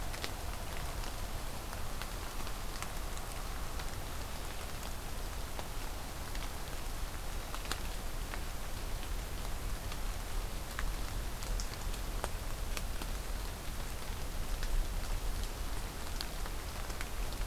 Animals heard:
forest ambience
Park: Marsh-Billings-Rockefeller National Historical Park